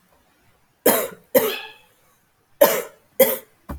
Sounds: Cough